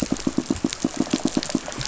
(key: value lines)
label: biophony, pulse
recorder: SoundTrap 500